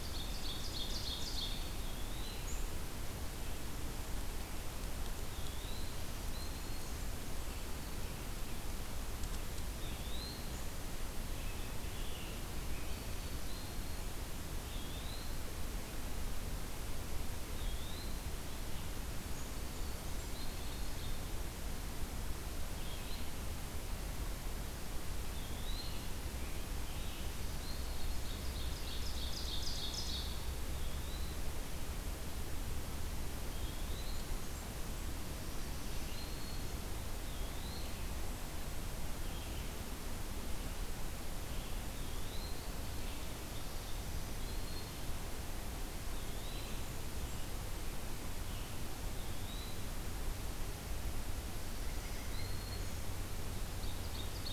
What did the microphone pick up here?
Ovenbird, Eastern Wood-Pewee, Black-throated Green Warbler, Scarlet Tanager, Blackburnian Warbler, Red-eyed Vireo, White-breasted Nuthatch